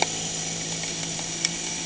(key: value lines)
label: anthrophony, boat engine
recorder: HydroMoth